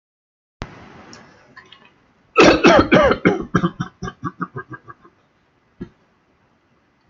{"expert_labels": [{"quality": "good", "cough_type": "dry", "dyspnea": false, "wheezing": false, "stridor": false, "choking": false, "congestion": false, "nothing": true, "diagnosis": "healthy cough", "severity": "pseudocough/healthy cough"}], "age": 74, "gender": "male", "respiratory_condition": false, "fever_muscle_pain": false, "status": "COVID-19"}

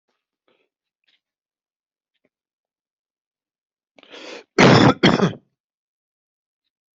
{"expert_labels": [{"quality": "good", "cough_type": "unknown", "dyspnea": false, "wheezing": false, "stridor": false, "choking": false, "congestion": false, "nothing": true, "diagnosis": "upper respiratory tract infection", "severity": "unknown"}], "age": 40, "gender": "male", "respiratory_condition": false, "fever_muscle_pain": false, "status": "healthy"}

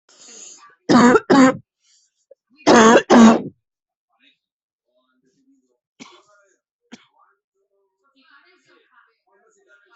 {"expert_labels": [{"quality": "good", "cough_type": "wet", "dyspnea": false, "wheezing": false, "stridor": false, "choking": false, "congestion": false, "nothing": true, "diagnosis": "lower respiratory tract infection", "severity": "severe"}], "age": 33, "gender": "female", "respiratory_condition": true, "fever_muscle_pain": false, "status": "symptomatic"}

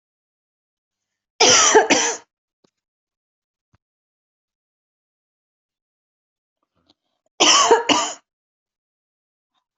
{"expert_labels": [{"quality": "good", "cough_type": "dry", "dyspnea": false, "wheezing": false, "stridor": false, "choking": false, "congestion": false, "nothing": true, "diagnosis": "upper respiratory tract infection", "severity": "mild"}], "age": 50, "gender": "female", "respiratory_condition": false, "fever_muscle_pain": true, "status": "symptomatic"}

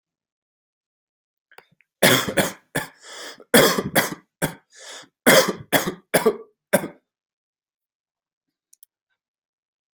{"expert_labels": [{"quality": "good", "cough_type": "dry", "dyspnea": false, "wheezing": false, "stridor": false, "choking": false, "congestion": false, "nothing": true, "diagnosis": "obstructive lung disease", "severity": "mild"}], "age": 35, "gender": "male", "respiratory_condition": false, "fever_muscle_pain": true, "status": "COVID-19"}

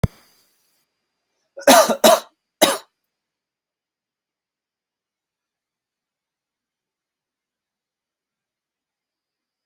{"expert_labels": [{"quality": "good", "cough_type": "dry", "dyspnea": false, "wheezing": false, "stridor": false, "choking": false, "congestion": false, "nothing": true, "diagnosis": "upper respiratory tract infection", "severity": "mild"}], "age": 23, "gender": "male", "respiratory_condition": false, "fever_muscle_pain": false, "status": "symptomatic"}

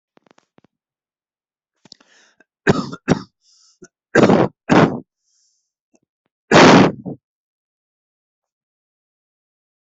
{"expert_labels": [{"quality": "poor", "cough_type": "unknown", "dyspnea": false, "wheezing": false, "stridor": false, "choking": false, "congestion": false, "nothing": true, "diagnosis": "lower respiratory tract infection", "severity": "mild"}, {"quality": "ok", "cough_type": "unknown", "dyspnea": false, "wheezing": false, "stridor": false, "choking": false, "congestion": false, "nothing": true, "diagnosis": "lower respiratory tract infection", "severity": "unknown"}, {"quality": "ok", "cough_type": "unknown", "dyspnea": false, "wheezing": false, "stridor": false, "choking": false, "congestion": false, "nothing": true, "diagnosis": "upper respiratory tract infection", "severity": "unknown"}, {"quality": "ok", "cough_type": "dry", "dyspnea": false, "wheezing": false, "stridor": false, "choking": false, "congestion": false, "nothing": true, "diagnosis": "upper respiratory tract infection", "severity": "mild"}], "age": 35, "gender": "male", "respiratory_condition": false, "fever_muscle_pain": false, "status": "symptomatic"}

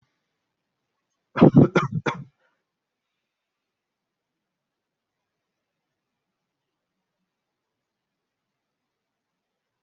{"expert_labels": [{"quality": "poor", "cough_type": "wet", "dyspnea": false, "wheezing": false, "stridor": false, "choking": false, "congestion": false, "nothing": true, "diagnosis": "lower respiratory tract infection", "severity": "mild"}], "age": 23, "gender": "male", "respiratory_condition": false, "fever_muscle_pain": false, "status": "healthy"}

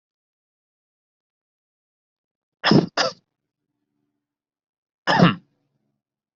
{"expert_labels": [{"quality": "ok", "cough_type": "dry", "dyspnea": false, "wheezing": false, "stridor": false, "choking": false, "congestion": false, "nothing": true, "diagnosis": "healthy cough", "severity": "pseudocough/healthy cough"}], "age": 37, "gender": "female", "respiratory_condition": false, "fever_muscle_pain": false, "status": "healthy"}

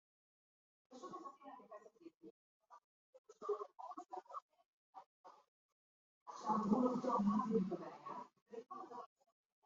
{"expert_labels": [{"quality": "no cough present", "cough_type": "unknown", "dyspnea": false, "wheezing": false, "stridor": false, "choking": false, "congestion": false, "nothing": true, "diagnosis": "healthy cough", "severity": "pseudocough/healthy cough"}]}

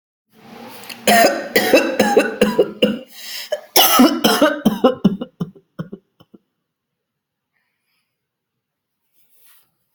{"expert_labels": [{"quality": "ok", "cough_type": "dry", "dyspnea": false, "wheezing": false, "stridor": false, "choking": false, "congestion": false, "nothing": true, "diagnosis": "COVID-19", "severity": "mild"}], "age": 26, "gender": "male", "respiratory_condition": false, "fever_muscle_pain": true, "status": "healthy"}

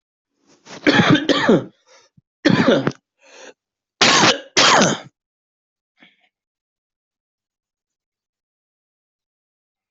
{"expert_labels": [{"quality": "ok", "cough_type": "wet", "dyspnea": false, "wheezing": false, "stridor": false, "choking": false, "congestion": false, "nothing": true, "diagnosis": "COVID-19", "severity": "mild"}], "age": 31, "gender": "male", "respiratory_condition": true, "fever_muscle_pain": true, "status": "COVID-19"}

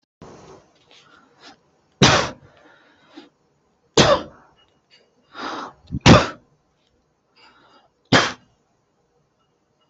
{"expert_labels": [{"quality": "poor", "cough_type": "unknown", "dyspnea": false, "wheezing": false, "stridor": false, "choking": false, "congestion": false, "nothing": true, "diagnosis": "healthy cough", "severity": "pseudocough/healthy cough"}], "gender": "male", "respiratory_condition": false, "fever_muscle_pain": false, "status": "healthy"}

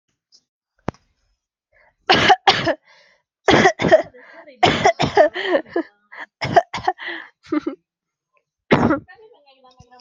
{"expert_labels": [{"quality": "good", "cough_type": "dry", "dyspnea": false, "wheezing": false, "stridor": false, "choking": false, "congestion": true, "nothing": false, "diagnosis": "upper respiratory tract infection", "severity": "mild"}], "age": 20, "gender": "female", "respiratory_condition": false, "fever_muscle_pain": true, "status": "COVID-19"}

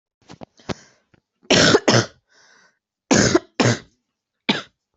{"expert_labels": [{"quality": "ok", "cough_type": "dry", "dyspnea": false, "wheezing": false, "stridor": false, "choking": false, "congestion": false, "nothing": true, "diagnosis": "lower respiratory tract infection", "severity": "mild"}]}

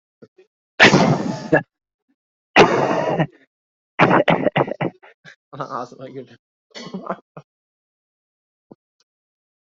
{"expert_labels": [{"quality": "poor", "cough_type": "unknown", "dyspnea": false, "wheezing": false, "stridor": false, "choking": false, "congestion": false, "nothing": true, "diagnosis": "healthy cough", "severity": "pseudocough/healthy cough"}], "age": 20, "gender": "female", "respiratory_condition": false, "fever_muscle_pain": true, "status": "symptomatic"}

